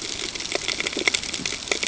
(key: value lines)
label: ambient
recorder: HydroMoth